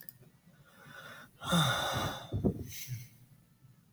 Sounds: Sigh